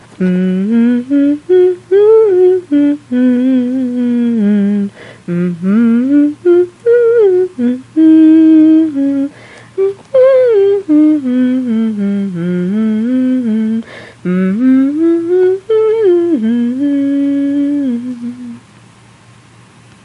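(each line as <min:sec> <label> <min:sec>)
0:00.1 A woman hums a nondescript folksy tune. 0:18.8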